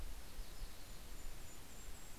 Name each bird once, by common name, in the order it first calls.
Yellow-rumped Warbler, Golden-crowned Kinglet